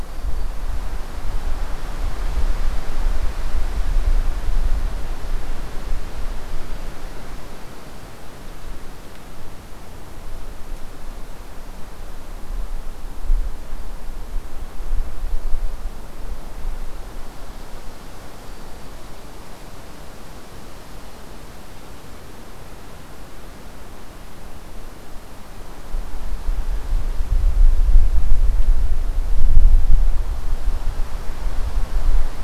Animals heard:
forest ambience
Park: Hubbard Brook Experimental Forest